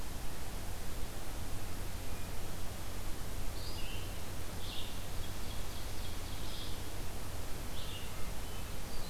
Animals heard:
Hermit Thrush (Catharus guttatus), Red-eyed Vireo (Vireo olivaceus), Ovenbird (Seiurus aurocapilla)

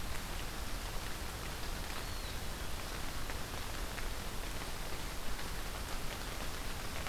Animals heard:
Eastern Wood-Pewee (Contopus virens)

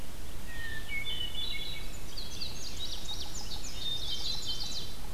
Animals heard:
Chestnut-sided Warbler (Setophaga pensylvanica), Indigo Bunting (Passerina cyanea), Hermit Thrush (Catharus guttatus)

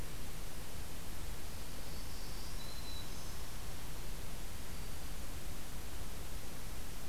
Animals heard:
Black-throated Green Warbler (Setophaga virens)

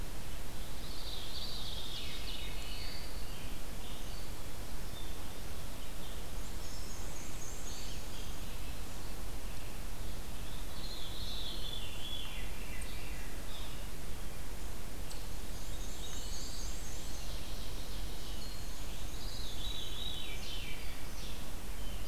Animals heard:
Black-throated Blue Warbler (Setophaga caerulescens), Red-eyed Vireo (Vireo olivaceus), Black-and-white Warbler (Mniotilta varia), Veery (Catharus fuscescens), Ovenbird (Seiurus aurocapilla)

